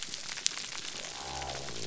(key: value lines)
label: biophony
recorder: SoundTrap 300